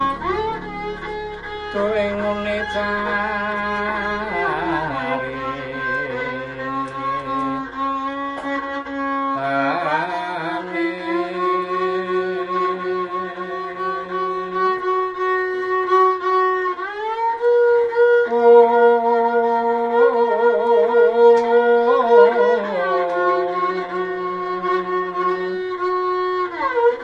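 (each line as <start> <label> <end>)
0.0 A violin plays sorrowful Islamic music closely. 27.0
1.7 A man is singing Islamic melodic chants closely. 7.7
9.3 A man is singing Islamic melodic chants closely. 14.9
18.2 A man is singing Islamic motifs in a rueful tone. 25.7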